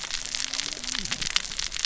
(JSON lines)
{"label": "biophony, cascading saw", "recorder": "SoundTrap 600 or HydroMoth"}